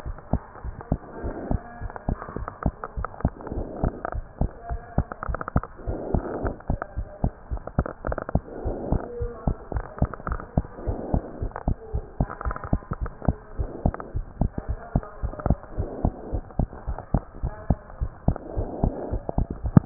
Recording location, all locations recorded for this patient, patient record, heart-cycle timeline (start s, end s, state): pulmonary valve (PV)
aortic valve (AV)+pulmonary valve (PV)+tricuspid valve (TV)+mitral valve (MV)
#Age: Child
#Sex: Female
#Height: 98.0 cm
#Weight: 16.6 kg
#Pregnancy status: False
#Murmur: Absent
#Murmur locations: nan
#Most audible location: nan
#Systolic murmur timing: nan
#Systolic murmur shape: nan
#Systolic murmur grading: nan
#Systolic murmur pitch: nan
#Systolic murmur quality: nan
#Diastolic murmur timing: nan
#Diastolic murmur shape: nan
#Diastolic murmur grading: nan
#Diastolic murmur pitch: nan
#Diastolic murmur quality: nan
#Outcome: Normal
#Campaign: 2015 screening campaign
0.00	0.03	unannotated
0.03	0.16	S1
0.16	0.30	systole
0.30	0.42	S2
0.42	0.64	diastole
0.64	0.74	S1
0.74	0.88	systole
0.88	0.98	S2
0.98	1.20	diastole
1.20	1.34	S1
1.34	1.48	systole
1.48	1.64	S2
1.64	1.82	diastole
1.82	1.92	S1
1.92	2.04	systole
2.04	2.18	S2
2.18	2.36	diastole
2.36	2.48	S1
2.48	2.62	systole
2.62	2.74	S2
2.74	2.94	diastole
2.94	3.08	S1
3.08	3.22	systole
3.22	3.32	S2
3.32	3.52	diastole
3.52	3.66	S1
3.66	3.80	systole
3.80	3.94	S2
3.94	4.14	diastole
4.14	4.24	S1
4.24	4.38	systole
4.38	4.52	S2
4.52	4.70	diastole
4.70	4.82	S1
4.82	4.96	systole
4.96	5.06	S2
5.06	5.26	diastole
5.26	5.40	S1
5.40	5.52	systole
5.52	5.64	S2
5.64	5.86	diastole
5.86	6.00	S1
6.00	6.10	systole
6.10	6.24	S2
6.24	6.40	diastole
6.40	6.54	S1
6.54	6.66	systole
6.66	6.80	S2
6.80	6.95	diastole
6.95	7.08	S1
7.08	7.22	systole
7.22	7.34	S2
7.34	7.52	diastole
7.52	7.62	S1
7.62	7.76	systole
7.76	7.86	S2
7.86	8.06	diastole
8.06	8.16	S1
8.16	8.32	systole
8.32	8.42	S2
8.42	8.64	diastole
8.64	8.78	S1
8.78	8.90	systole
8.90	9.02	S2
9.02	9.18	diastole
9.18	9.32	S1
9.32	9.44	systole
9.44	9.58	S2
9.58	9.73	diastole
9.73	9.86	S1
9.86	10.00	systole
10.00	10.10	S2
10.10	10.28	diastole
10.28	10.42	S1
10.42	10.56	systole
10.56	10.66	S2
10.66	10.86	diastole
10.86	10.98	S1
10.98	11.10	systole
11.10	11.24	S2
11.24	11.40	diastole
11.40	11.52	S1
11.52	11.66	systole
11.66	11.78	S2
11.78	11.92	diastole
11.92	12.04	S1
12.04	12.18	systole
12.18	12.28	S2
12.28	12.44	diastole
12.44	12.56	S1
12.56	12.70	systole
12.70	12.82	S2
12.82	13.00	diastole
13.00	13.10	S1
13.10	13.26	systole
13.26	13.36	S2
13.36	13.58	diastole
13.58	13.72	S1
13.72	13.84	systole
13.84	13.96	S2
13.96	14.14	diastole
14.14	14.26	S1
14.26	14.42	systole
14.42	14.52	S2
14.52	14.67	diastole
14.67	14.78	S1
14.78	14.93	systole
14.93	15.04	S2
15.04	15.21	diastole
15.21	15.32	S1
15.32	15.44	systole
15.44	15.60	S2
15.60	15.76	diastole
15.76	15.88	S1
15.88	16.02	systole
16.02	16.16	S2
16.16	16.32	diastole
16.32	16.44	S1
16.44	16.58	systole
16.58	16.72	S2
16.72	16.88	diastole
16.88	17.00	S1
17.00	17.12	systole
17.12	17.22	S2
17.22	17.42	diastole
17.42	17.52	S1
17.52	17.68	systole
17.68	17.80	S2
17.80	18.00	diastole
18.00	18.10	S1
18.10	18.26	systole
18.26	18.40	S2
18.40	18.56	diastole
18.56	18.70	S1
18.70	18.82	systole
18.82	18.96	S2
18.96	19.10	diastole
19.10	19.24	S1
19.24	19.86	unannotated